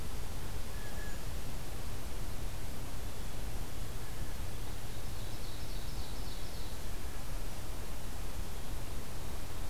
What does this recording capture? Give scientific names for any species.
Cyanocitta cristata, Seiurus aurocapilla